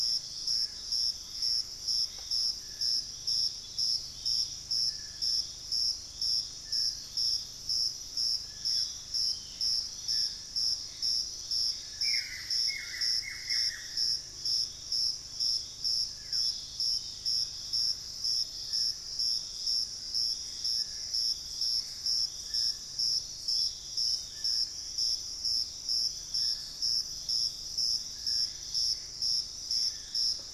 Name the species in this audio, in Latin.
Campylorhynchus turdinus, Thamnomanes ardesiacus, Corythopis torquatus, unidentified bird, Cercomacra cinerascens, Xiphorhynchus guttatus, Formicarius analis, Nystalus obamai